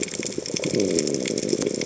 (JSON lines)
{"label": "biophony", "recorder": "HydroMoth"}